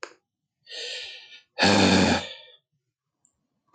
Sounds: Sigh